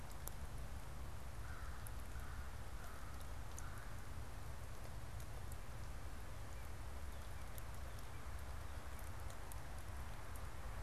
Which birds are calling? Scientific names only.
Corvus brachyrhynchos, Cardinalis cardinalis